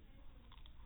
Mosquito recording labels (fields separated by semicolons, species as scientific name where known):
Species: no mosquito; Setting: cup